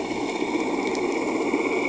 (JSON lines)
{"label": "anthrophony, boat engine", "recorder": "HydroMoth"}